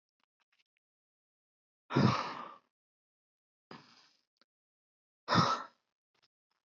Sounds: Sigh